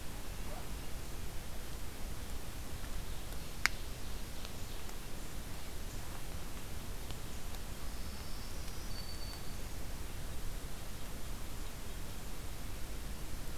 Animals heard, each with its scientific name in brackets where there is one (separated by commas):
Ovenbird (Seiurus aurocapilla), Black-throated Green Warbler (Setophaga virens)